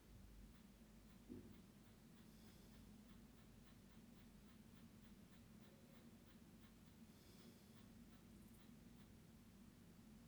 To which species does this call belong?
Canariola emarginata